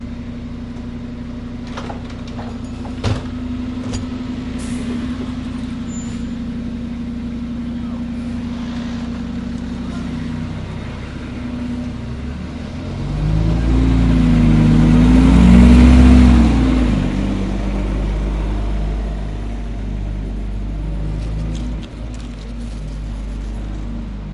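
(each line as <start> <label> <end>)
0.0 A car engine is running. 2.8
2.9 The sound of entering a car. 4.3
4.3 Car engine running. 12.8
12.9 A car accelerates and drives away. 17.9
18.1 Car engine sound fading as the vehicle drives away. 24.3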